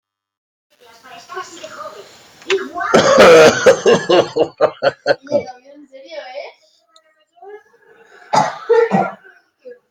{"expert_labels": [{"quality": "good", "cough_type": "wet", "dyspnea": false, "wheezing": false, "stridor": false, "choking": false, "congestion": false, "nothing": true, "diagnosis": "healthy cough", "severity": "pseudocough/healthy cough"}], "age": 42, "gender": "male", "respiratory_condition": false, "fever_muscle_pain": false, "status": "symptomatic"}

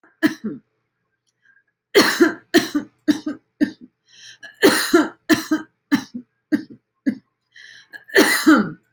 {"expert_labels": [{"quality": "good", "cough_type": "dry", "dyspnea": false, "wheezing": false, "stridor": false, "choking": false, "congestion": false, "nothing": true, "diagnosis": "lower respiratory tract infection", "severity": "mild"}], "age": 51, "gender": "female", "respiratory_condition": false, "fever_muscle_pain": false, "status": "symptomatic"}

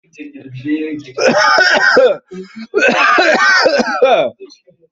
{"expert_labels": [{"quality": "ok", "cough_type": "dry", "dyspnea": false, "wheezing": false, "stridor": false, "choking": false, "congestion": false, "nothing": true, "diagnosis": "healthy cough", "severity": "pseudocough/healthy cough"}], "age": 29, "gender": "male", "respiratory_condition": false, "fever_muscle_pain": false, "status": "COVID-19"}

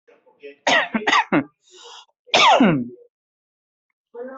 {"expert_labels": [{"quality": "ok", "cough_type": "dry", "dyspnea": false, "wheezing": false, "stridor": false, "choking": false, "congestion": false, "nothing": true, "diagnosis": "COVID-19", "severity": "mild"}]}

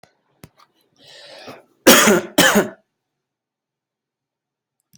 {"expert_labels": [{"quality": "ok", "cough_type": "dry", "dyspnea": false, "wheezing": false, "stridor": false, "choking": false, "congestion": false, "nothing": true, "diagnosis": "healthy cough", "severity": "pseudocough/healthy cough"}], "age": 32, "gender": "male", "respiratory_condition": false, "fever_muscle_pain": false, "status": "healthy"}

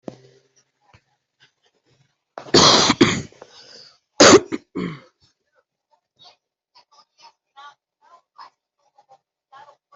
{"expert_labels": [{"quality": "ok", "cough_type": "wet", "dyspnea": false, "wheezing": false, "stridor": false, "choking": false, "congestion": false, "nothing": true, "diagnosis": "lower respiratory tract infection", "severity": "mild"}]}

